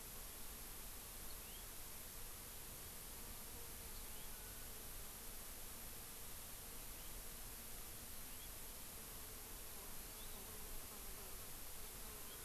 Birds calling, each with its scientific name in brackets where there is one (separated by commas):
Hawaii Amakihi (Chlorodrepanis virens), House Finch (Haemorhous mexicanus)